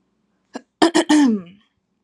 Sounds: Throat clearing